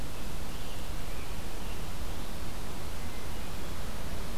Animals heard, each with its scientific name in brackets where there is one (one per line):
Scarlet Tanager (Piranga olivacea)